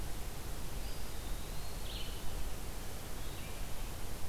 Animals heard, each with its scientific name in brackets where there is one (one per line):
Red-eyed Vireo (Vireo olivaceus)
Eastern Wood-Pewee (Contopus virens)